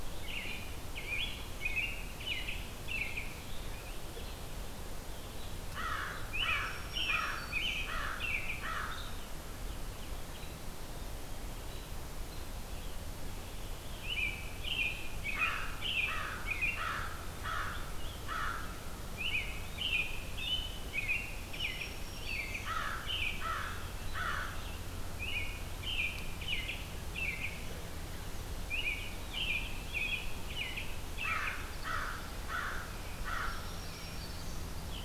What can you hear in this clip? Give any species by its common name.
American Robin, American Crow, Black-throated Green Warbler, Hairy Woodpecker